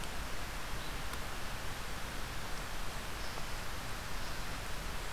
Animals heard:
forest ambience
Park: Marsh-Billings-Rockefeller National Historical Park